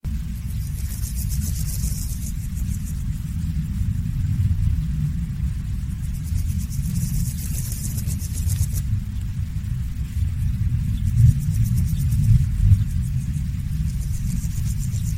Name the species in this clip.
Pseudochorthippus parallelus